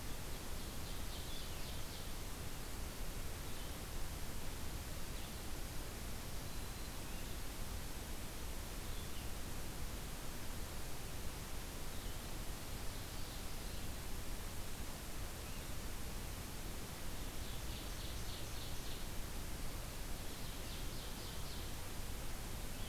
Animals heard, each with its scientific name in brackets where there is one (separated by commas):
Red-eyed Vireo (Vireo olivaceus), Ovenbird (Seiurus aurocapilla), Black-throated Green Warbler (Setophaga virens)